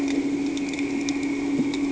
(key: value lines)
label: anthrophony, boat engine
recorder: HydroMoth